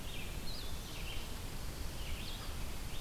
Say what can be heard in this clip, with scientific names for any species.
Vireo olivaceus, Vireo solitarius